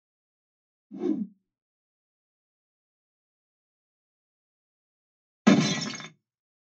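At 0.9 seconds, there is a whoosh. Then, at 5.44 seconds, glass shatters.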